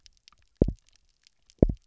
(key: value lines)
label: biophony, double pulse
recorder: SoundTrap 300